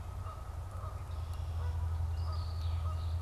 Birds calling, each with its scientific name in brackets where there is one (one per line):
Red-winged Blackbird (Agelaius phoeniceus)
Canada Goose (Branta canadensis)